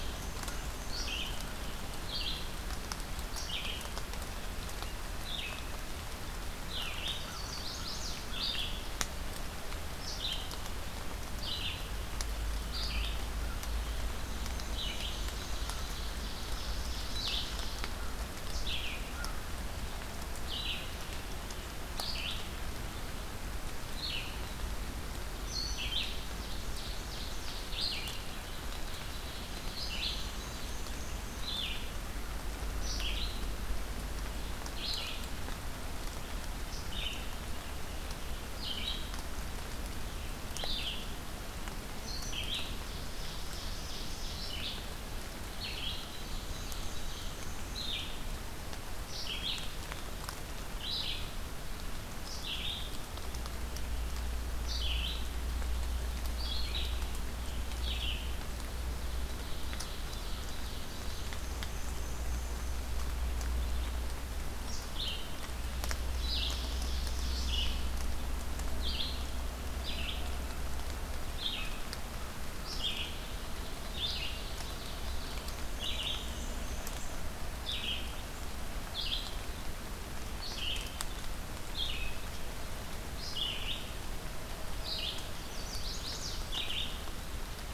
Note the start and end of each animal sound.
0.0s-1.5s: Black-and-white Warbler (Mniotilta varia)
0.0s-28.6s: Red-eyed Vireo (Vireo olivaceus)
6.9s-8.2s: Chestnut-sided Warbler (Setophaga pensylvanica)
14.1s-16.1s: Black-and-white Warbler (Mniotilta varia)
15.0s-17.9s: Ovenbird (Seiurus aurocapilla)
25.8s-27.8s: Ovenbird (Seiurus aurocapilla)
28.5s-29.7s: Ovenbird (Seiurus aurocapilla)
28.9s-58.4s: Red-eyed Vireo (Vireo olivaceus)
29.3s-31.5s: Black-and-white Warbler (Mniotilta varia)
42.4s-45.1s: Ovenbird (Seiurus aurocapilla)
45.9s-47.4s: Ovenbird (Seiurus aurocapilla)
46.0s-48.0s: Black-and-white Warbler (Mniotilta varia)
59.0s-61.5s: Ovenbird (Seiurus aurocapilla)
60.8s-62.8s: Black-and-white Warbler (Mniotilta varia)
64.6s-87.4s: Red-eyed Vireo (Vireo olivaceus)
65.9s-68.0s: Ovenbird (Seiurus aurocapilla)
74.3s-75.6s: Ovenbird (Seiurus aurocapilla)
75.0s-77.3s: Black-and-white Warbler (Mniotilta varia)
85.1s-86.6s: Chestnut-sided Warbler (Setophaga pensylvanica)

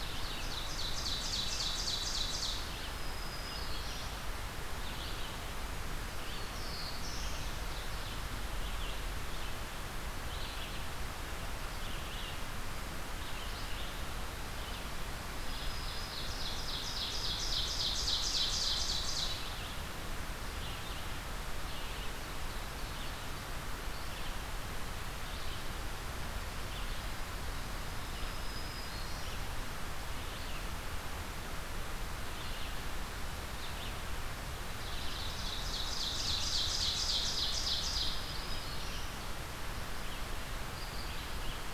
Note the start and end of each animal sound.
0.0s-2.7s: Ovenbird (Seiurus aurocapilla)
0.0s-21.9s: Red-eyed Vireo (Vireo olivaceus)
2.7s-4.2s: Black-throated Green Warbler (Setophaga virens)
6.3s-7.4s: Black-throated Blue Warbler (Setophaga caerulescens)
15.3s-16.4s: Black-throated Green Warbler (Setophaga virens)
15.3s-19.4s: Ovenbird (Seiurus aurocapilla)
22.5s-41.7s: Red-eyed Vireo (Vireo olivaceus)
28.1s-29.4s: Black-throated Green Warbler (Setophaga virens)
34.8s-38.1s: Ovenbird (Seiurus aurocapilla)
37.8s-39.1s: Black-throated Green Warbler (Setophaga virens)

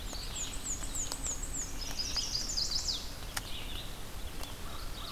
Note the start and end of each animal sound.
0.0s-1.9s: Black-and-white Warbler (Mniotilta varia)
0.0s-5.1s: Red-eyed Vireo (Vireo olivaceus)
1.7s-3.1s: Chestnut-sided Warbler (Setophaga pensylvanica)
4.6s-5.1s: American Crow (Corvus brachyrhynchos)

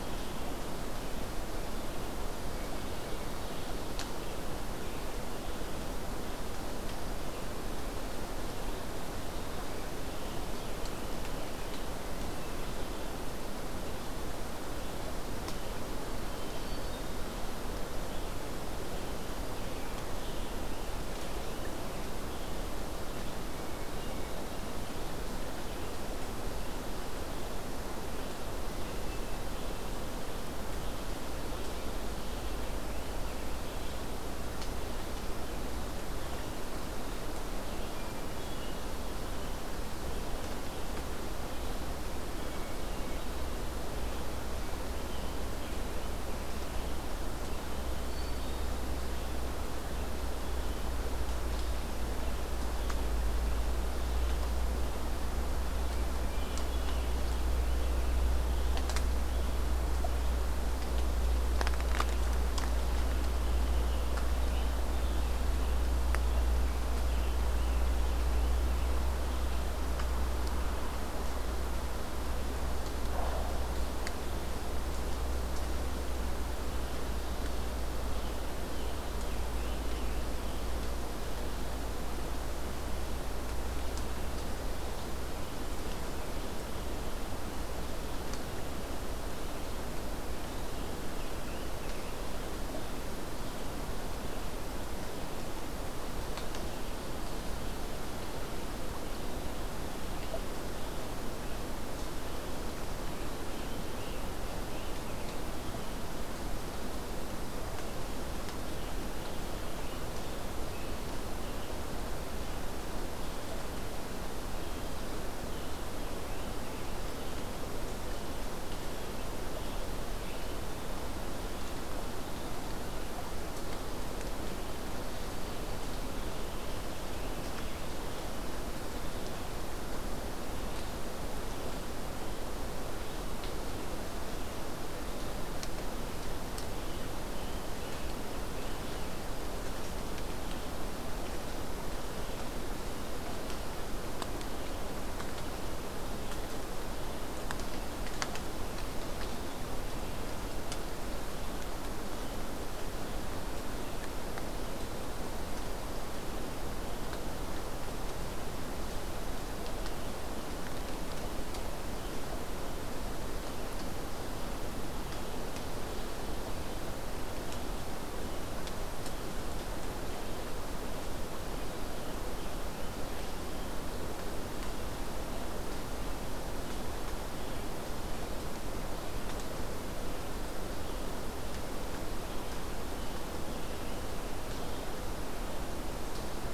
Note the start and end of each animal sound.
0.0s-0.7s: Scarlet Tanager (Piranga olivacea)
16.4s-17.2s: Hermit Thrush (Catharus guttatus)
43.5s-46.3s: Scarlet Tanager (Piranga olivacea)
55.7s-57.1s: Hermit Thrush (Catharus guttatus)
62.8s-66.0s: Scarlet Tanager (Piranga olivacea)
66.7s-69.5s: Scarlet Tanager (Piranga olivacea)
77.8s-80.7s: Scarlet Tanager (Piranga olivacea)
89.9s-92.7s: Scarlet Tanager (Piranga olivacea)
103.0s-106.1s: Scarlet Tanager (Piranga olivacea)
114.3s-117.5s: Scarlet Tanager (Piranga olivacea)
118.0s-120.8s: Scarlet Tanager (Piranga olivacea)
136.7s-139.3s: Scarlet Tanager (Piranga olivacea)
164.8s-166.7s: Ovenbird (Seiurus aurocapilla)
171.2s-174.0s: Scarlet Tanager (Piranga olivacea)

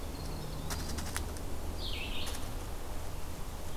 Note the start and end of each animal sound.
0.0s-1.1s: Winter Wren (Troglodytes hiemalis)
0.0s-3.8s: Red-eyed Vireo (Vireo olivaceus)

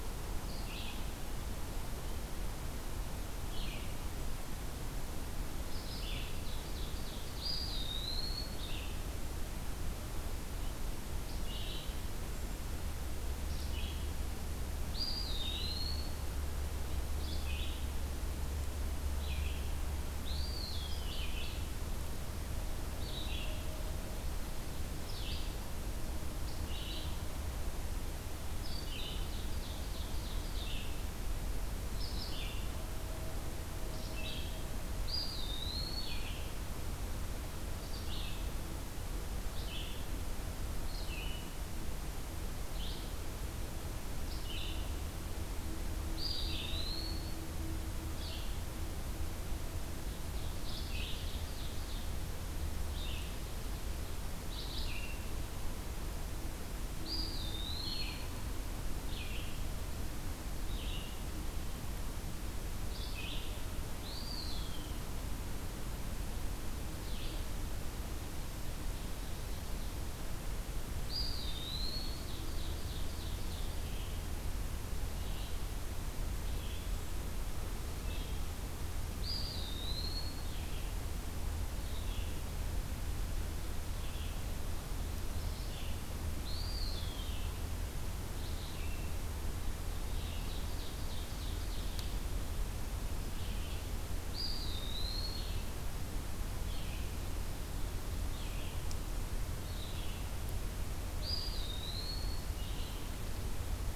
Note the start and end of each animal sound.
0.0s-32.7s: Red-eyed Vireo (Vireo olivaceus)
6.1s-7.6s: Ovenbird (Seiurus aurocapilla)
7.4s-8.6s: Eastern Wood-Pewee (Contopus virens)
14.9s-16.1s: Eastern Wood-Pewee (Contopus virens)
20.2s-21.4s: Eastern Wood-Pewee (Contopus virens)
29.0s-30.7s: Ovenbird (Seiurus aurocapilla)
33.9s-63.5s: Red-eyed Vireo (Vireo olivaceus)
35.1s-36.1s: Eastern Wood-Pewee (Contopus virens)
46.2s-47.3s: Eastern Wood-Pewee (Contopus virens)
49.8s-52.1s: Ovenbird (Seiurus aurocapilla)
57.0s-58.3s: Eastern Wood-Pewee (Contopus virens)
64.0s-65.0s: Eastern Wood-Pewee (Contopus virens)
66.9s-67.4s: Red-eyed Vireo (Vireo olivaceus)
68.7s-70.0s: Ovenbird (Seiurus aurocapilla)
71.0s-72.3s: Eastern Wood-Pewee (Contopus virens)
72.2s-73.7s: Ovenbird (Seiurus aurocapilla)
73.8s-90.6s: Red-eyed Vireo (Vireo olivaceus)
79.2s-80.5s: Eastern Wood-Pewee (Contopus virens)
86.4s-87.4s: Eastern Wood-Pewee (Contopus virens)
90.5s-92.2s: Ovenbird (Seiurus aurocapilla)
93.2s-103.2s: Red-eyed Vireo (Vireo olivaceus)
94.3s-95.6s: Eastern Wood-Pewee (Contopus virens)
101.2s-102.4s: Eastern Wood-Pewee (Contopus virens)

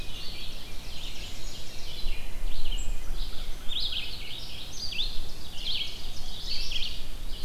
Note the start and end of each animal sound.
0.1s-7.4s: Red-eyed Vireo (Vireo olivaceus)
0.2s-2.1s: Ovenbird (Seiurus aurocapilla)
0.9s-1.8s: Black-and-white Warbler (Mniotilta varia)
4.8s-6.9s: Ovenbird (Seiurus aurocapilla)

